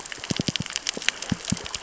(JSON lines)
{"label": "biophony, knock", "recorder": "SoundTrap 600 or HydroMoth"}